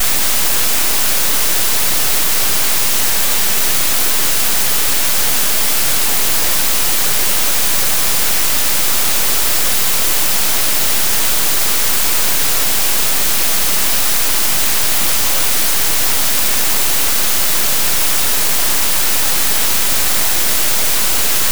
How is the weather here?
raining